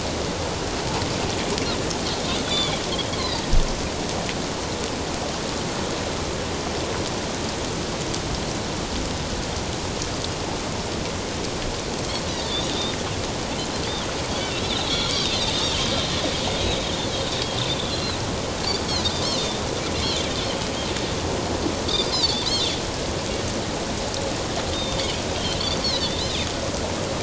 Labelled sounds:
2.4	3.4	Pacific white-sided dolphin, 3.1 to 4.5 kHz
12.3	13.0	Pacific white-sided dolphin, 3.4 to 4.0 kHz
14.6	16.1	Pacific white-sided dolphin, 3.0 to 4.3 kHz
17.7	18.2	Pacific white-sided dolphin, 3.2 to 4.2 kHz
19.4	20.2	Pacific white-sided dolphin, 3.5 to 4.5 kHz
22.1	22.5	Pacific white-sided dolphin, 3.2 to 5.3 kHz
24.7	25.1	Pacific white-sided dolphin, 3.2 to 3.8 kHz
25.4	26.4	Pacific white-sided dolphin, 2.9 to 4.5 kHz

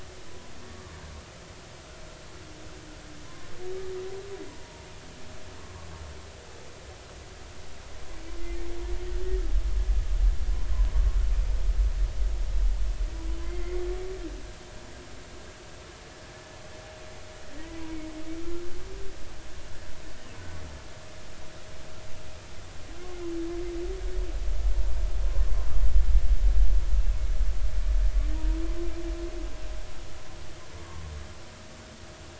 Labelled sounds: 0.6	0.9	humpback whale, 1.0 to 1.2 kHz
3.2	3.5	humpback whale, 0.96 to 1.1 kHz
4.5	4.9	humpback whale, 0.90 to 1.0 kHz
13.4	13.8	humpback whale, 2.0 to 2.2 kHz
28.3	28.6	humpback whale, 0.90 to 1.0 kHz
30.8	31.0	humpback whale, 1.0 to 1.2 kHz

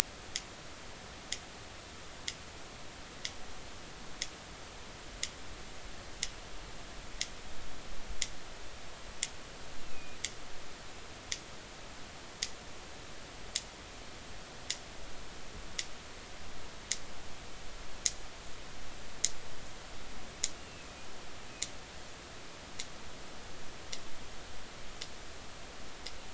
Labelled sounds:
9.8	10.2	killer whale, northern resident, A clan, AA subclan, A05 pod, call N04, 2.4 to 2.7 kHz
20.6	21.0	killer whale, northern resident, A clan, AA subclan, A05 pod, call N04, 2.4 to 2.8 kHz

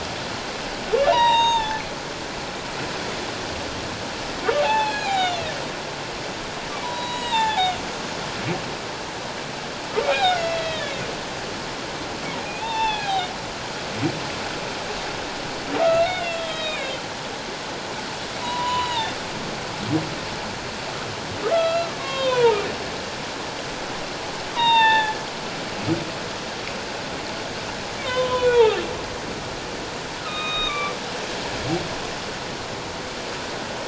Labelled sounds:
1.1	1.8	humpback whale, 0.78 to 7.5 kHz
4.6	5.5	humpback whale, 0.78 to 4.3 kHz
6.8	7.7	humpback whale, 0.78 to 7.8 kHz
10.1	10.9	humpback whale, 1.2 to 4.1 kHz
12.4	13.3	humpback whale, 0.78 to 4.0 kHz
15.7	16.9	humpback whale, 1.2 to 3.9 kHz
18.4	19.2	humpback whale, 0.78 to 4.0 kHz
21.5	22.6	humpback whale, 0.84 to 3.8 kHz
24.5	25.2	humpback whale, 0.81 to 3.9 kHz
28.0	28.8	humpback whale, 0.94 to 3.9 kHz
30.2	30.9	humpback whale, 1.1 to 3.8 kHz

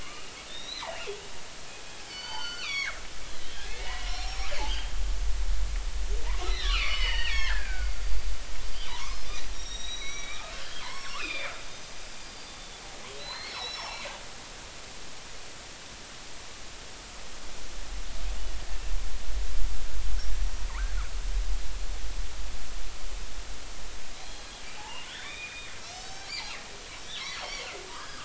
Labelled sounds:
0.0	1.1	killer whale, northern resident, G clan, 1.0 to 4.2 kHz
2.0	3.0	killer whale, northern resident, G clan, 0.80 to 7.0 kHz
3.4	5.0	killer whale, northern resident, G clan, 1.6 to 5.6 kHz
6.4	8.0	killer whale, northern resident, G clan, 0.86 to 5.4 kHz
8.7	10.5	killer whale, northern resident, G clan, 0.83 to 7.6 kHz
10.8	11.5	killer whale, northern resident, G clan, 0.86 to 5.7 kHz
12.2	14.0	killer whale, northern resident, G clan, 3.7 to 5.6 kHz
20.7	21.0	killer whale, northern resident, G clan, 0.86 to 1.7 kHz
24.1	26.6	killer whale, northern resident, G clan, 0.80 to 6.3 kHz
27.1	28.2	killer whale, northern resident, G clan, 1.4 to 5.9 kHz

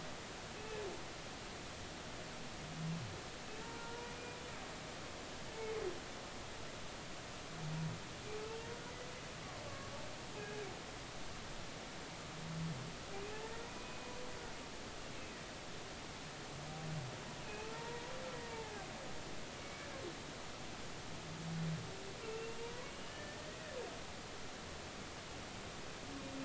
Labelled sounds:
0.6	0.8	humpback whale, 2.5 to 2.7 kHz
3.6	4.1	humpback whale, 0.86 to 0.99 kHz
9.7	9.9	humpback whale, 1.1 to 1.2 kHz
10.4	10.7	humpback whale, 1.6 to 1.7 kHz
13.4	14.1	humpback whale, 1.8 to 2.6 kHz
17.6	18.1	humpback whale, 0.83 to 1.0 kHz
18.4	19.9	humpback whale, 0.80 to 2.3 kHz
22.2	23.4	humpback whale, 0.90 to 3.0 kHz

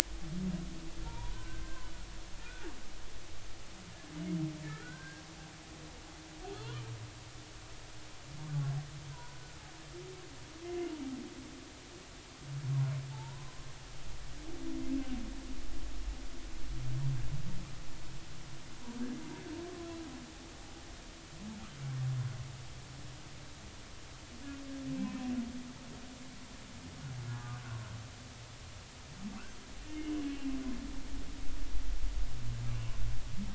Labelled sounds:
1.0	1.9	humpback whale, 0.86 to 1.6 kHz
2.4	2.7	humpback whale, 1.3 to 1.6 kHz
4.7	5.2	humpback whale, 1.2 to 1.7 kHz
6.6	6.8	humpback whale, 0.86 to 1.2 kHz
9.1	9.6	humpback whale, 0.90 to 1.6 kHz
10.6	10.9	humpback whale, 2.0 to 2.2 kHz
13.1	13.6	humpback whale, 0.80 to 1.1 kHz

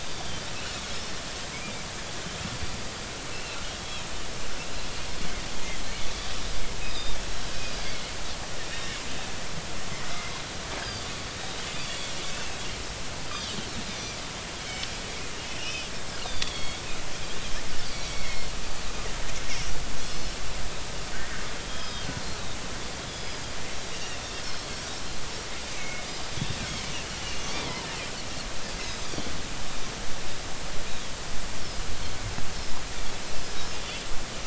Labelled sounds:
0.0	0.4	Pacific white-sided dolphin, 3.5 to 3.7 kHz
3.3	4.1	Pacific white-sided dolphin, 2.5 to 3.4 kHz
6.8	7.8	Pacific white-sided dolphin, 2.4 to 5.2 kHz
10.8	12.6	Pacific white-sided dolphin, 2.1 to 5.0 kHz
14.6	16.8	Pacific white-sided dolphin, 2.0 to 5.7 kHz
17.8	18.5	Pacific white-sided dolphin, 1.9 to 5.6 kHz
20.1	22.1	Pacific white-sided dolphin, 1.8 to 5.3 kHz
23.1	24.7	Pacific white-sided dolphin, 2.6 to 5.2 kHz
25.7	26.0	Pacific white-sided dolphin, 2.1 to 2.4 kHz
27.2	27.6	Pacific white-sided dolphin, 2.7 to 6.4 kHz
28.8	29.2	Pacific white-sided dolphin, 4.5 to 5.2 kHz
33.8	34.1	Pacific white-sided dolphin, 3.3 to 3.5 kHz

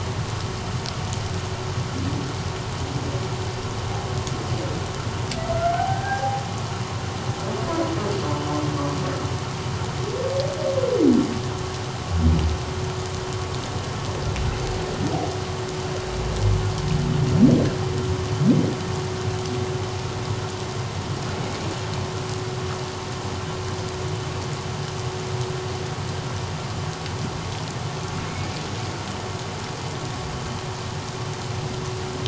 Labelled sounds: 5.5	6.4	humpback whale, 0.78 to 1.7 kHz

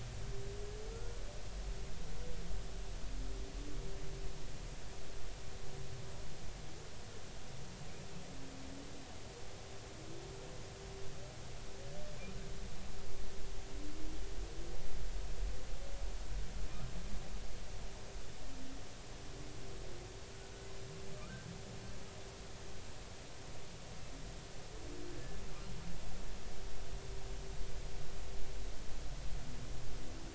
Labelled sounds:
0.9	1.2	humpback whale, 1.3 to 1.5 kHz

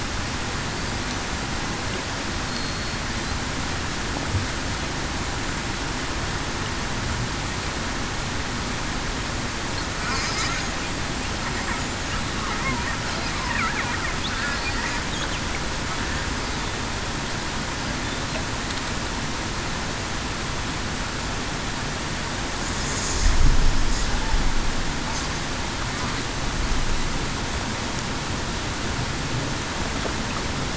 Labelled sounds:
2.5	3.0	killer whale, Bigg's (transient), 4.3 to 4.4 kHz

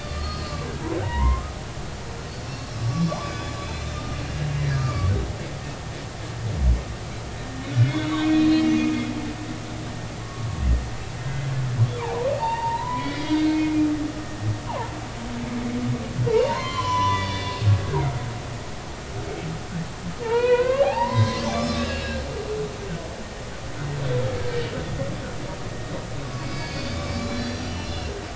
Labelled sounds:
0.0	1.4	humpback whale, 0.86 to 5.0 kHz
2.7	4.2	humpback whale, 0.80 to 5.4 kHz
4.6	5.1	humpback whale, 1.1 to 2.1 kHz
7.7	8.8	humpback whale, 1.4 to 4.2 kHz
10.2	10.5	humpback whale, 1.1 to 1.2 kHz
11.2	13.8	humpback whale, 0.80 to 4.2 kHz
16.3	17.7	humpback whale, 0.86 to 4.7 kHz
20.2	22.2	humpback whale, 0.80 to 5.4 kHz
26.4	28.1	humpback whale, 1.7 to 5.8 kHz

